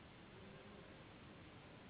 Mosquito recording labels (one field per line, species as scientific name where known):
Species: Anopheles gambiae s.s.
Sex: female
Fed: unfed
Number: one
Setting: insect culture